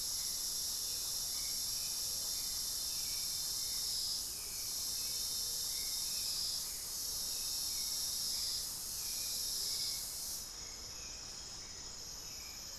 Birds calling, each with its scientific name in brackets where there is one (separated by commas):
Speckled Chachalaca (Ortalis guttata), Hauxwell's Thrush (Turdus hauxwelli)